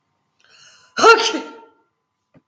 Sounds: Sneeze